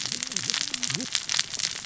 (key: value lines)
label: biophony, cascading saw
recorder: SoundTrap 600 or HydroMoth